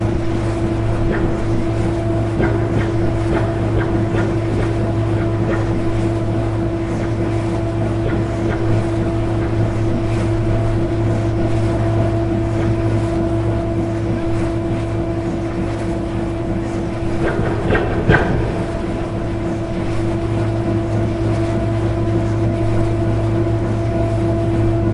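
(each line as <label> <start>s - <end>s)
The sound of a nearby wind turbine turning. 0.0s - 24.9s
The gearing of a wind turbine operating. 2.3s - 5.7s
The gearing of a wind turbine operating. 17.1s - 18.8s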